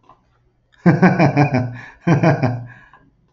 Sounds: Laughter